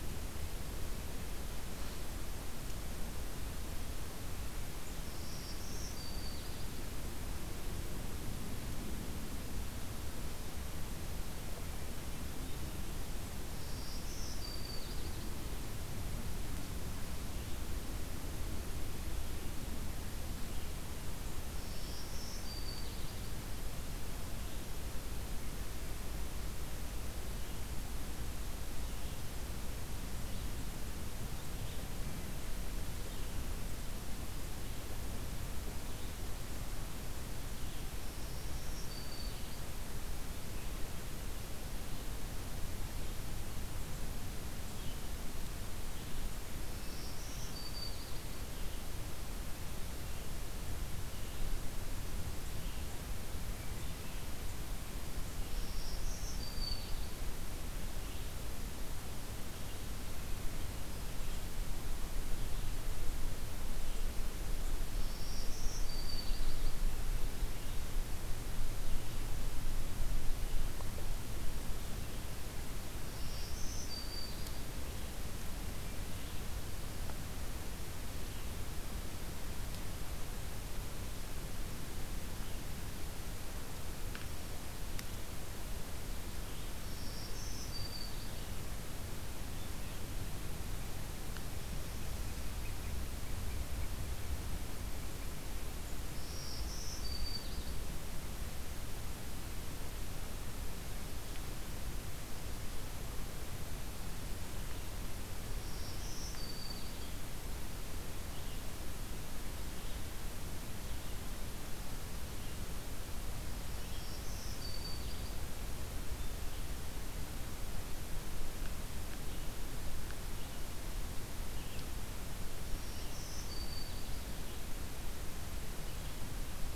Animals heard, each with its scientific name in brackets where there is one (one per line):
Red-eyed Vireo (Vireo olivaceus)
Black-throated Green Warbler (Setophaga virens)
American Robin (Turdus migratorius)